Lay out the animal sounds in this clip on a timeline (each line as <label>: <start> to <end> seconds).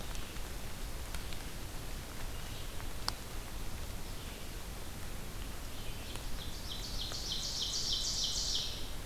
Red-eyed Vireo (Vireo olivaceus): 0.0 to 6.3 seconds
Ovenbird (Seiurus aurocapilla): 6.0 to 9.1 seconds